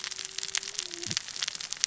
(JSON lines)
{"label": "biophony, cascading saw", "recorder": "SoundTrap 600 or HydroMoth"}